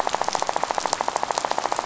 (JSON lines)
{"label": "biophony, rattle", "recorder": "SoundTrap 500"}